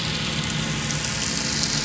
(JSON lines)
{"label": "anthrophony, boat engine", "recorder": "SoundTrap 500"}